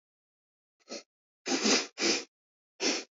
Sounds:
Sniff